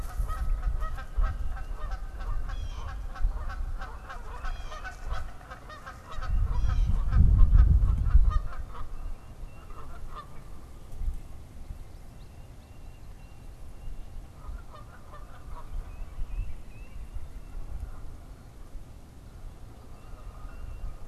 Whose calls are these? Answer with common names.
Canada Goose, Tufted Titmouse